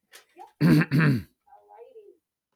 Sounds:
Throat clearing